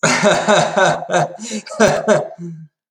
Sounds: Laughter